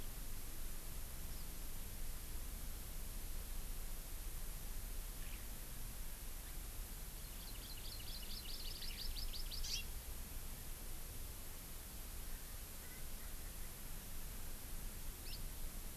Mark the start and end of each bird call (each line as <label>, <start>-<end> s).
Hawaii Amakihi (Chlorodrepanis virens), 7.2-9.9 s
Erckel's Francolin (Pternistis erckelii), 12.3-13.7 s
Hawaii Amakihi (Chlorodrepanis virens), 15.2-15.4 s